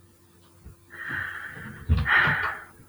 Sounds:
Sigh